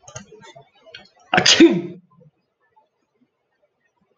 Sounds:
Sneeze